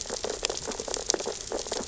{"label": "biophony, sea urchins (Echinidae)", "recorder": "SoundTrap 600 or HydroMoth"}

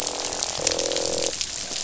{"label": "biophony, croak", "recorder": "SoundTrap 500"}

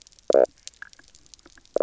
{"label": "biophony, knock croak", "recorder": "SoundTrap 300"}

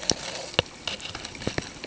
{"label": "ambient", "recorder": "HydroMoth"}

